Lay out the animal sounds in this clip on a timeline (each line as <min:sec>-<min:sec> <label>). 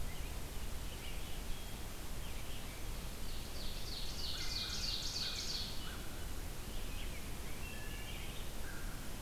0:00.0-0:01.2 American Robin (Turdus migratorius)
0:00.0-0:09.2 Red-eyed Vireo (Vireo olivaceus)
0:03.2-0:05.8 Ovenbird (Seiurus aurocapilla)
0:04.1-0:05.4 Wood Thrush (Hylocichla mustelina)
0:07.5-0:08.2 Wood Thrush (Hylocichla mustelina)
0:08.7-0:09.1 American Crow (Corvus brachyrhynchos)